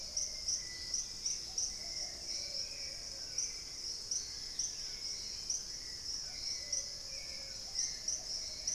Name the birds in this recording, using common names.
Dusky-capped Greenlet, Hauxwell's Thrush, Plumbeous Pigeon, Long-billed Woodcreeper